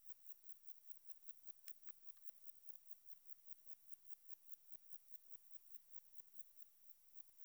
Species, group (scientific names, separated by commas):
Metrioptera saussuriana, Orthoptera